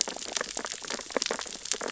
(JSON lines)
{"label": "biophony, sea urchins (Echinidae)", "recorder": "SoundTrap 600 or HydroMoth"}